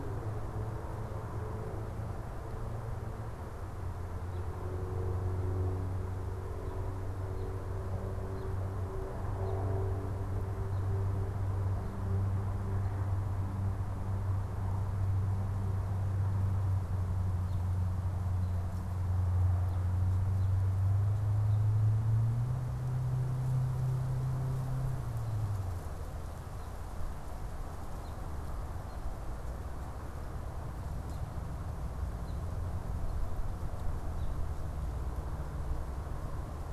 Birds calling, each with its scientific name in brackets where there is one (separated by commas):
American Robin (Turdus migratorius)